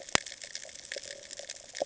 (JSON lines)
{"label": "ambient", "recorder": "HydroMoth"}